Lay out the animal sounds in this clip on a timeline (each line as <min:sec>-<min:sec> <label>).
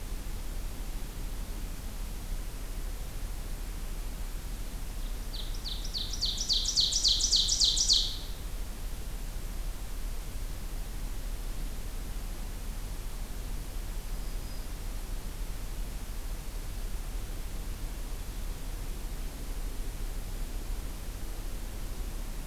0:05.1-0:08.3 Ovenbird (Seiurus aurocapilla)
0:14.0-0:14.7 Black-throated Green Warbler (Setophaga virens)